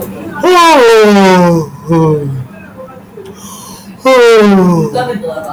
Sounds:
Sigh